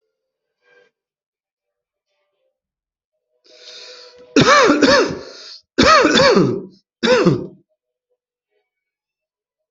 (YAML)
expert_labels:
- quality: good
  cough_type: dry
  dyspnea: false
  wheezing: false
  stridor: false
  choking: false
  congestion: false
  nothing: true
  diagnosis: upper respiratory tract infection
  severity: mild
age: 41
gender: male
respiratory_condition: false
fever_muscle_pain: false
status: COVID-19